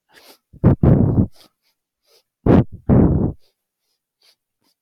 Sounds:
Sniff